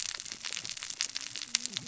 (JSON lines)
{"label": "biophony, cascading saw", "recorder": "SoundTrap 600 or HydroMoth"}